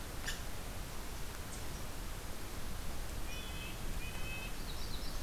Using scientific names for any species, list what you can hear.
Tamiasciurus hudsonicus, Sitta canadensis, Setophaga magnolia